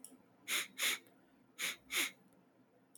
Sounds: Sniff